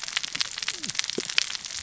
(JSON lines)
{"label": "biophony, cascading saw", "recorder": "SoundTrap 600 or HydroMoth"}